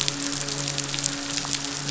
{"label": "biophony, midshipman", "recorder": "SoundTrap 500"}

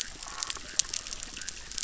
{"label": "biophony, chorus", "recorder": "SoundTrap 600"}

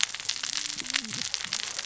{"label": "biophony, cascading saw", "recorder": "SoundTrap 600 or HydroMoth"}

